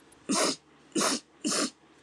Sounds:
Sniff